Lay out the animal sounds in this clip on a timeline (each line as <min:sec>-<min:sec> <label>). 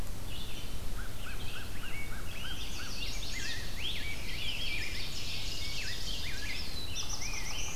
0:00.0-0:07.8 Red-eyed Vireo (Vireo olivaceus)
0:00.7-0:03.7 American Crow (Corvus brachyrhynchos)
0:02.3-0:03.7 Chestnut-sided Warbler (Setophaga pensylvanica)
0:02.4-0:07.8 Rose-breasted Grosbeak (Pheucticus ludovicianus)
0:03.9-0:06.5 Ovenbird (Seiurus aurocapilla)
0:06.2-0:07.8 Black-throated Blue Warbler (Setophaga caerulescens)